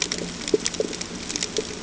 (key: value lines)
label: ambient
recorder: HydroMoth